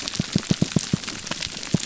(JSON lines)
{"label": "biophony, pulse", "recorder": "SoundTrap 300"}